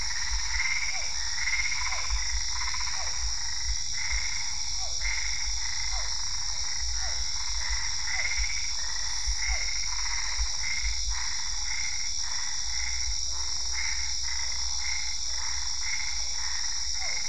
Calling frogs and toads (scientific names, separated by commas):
Boana albopunctata, Physalaemus cuvieri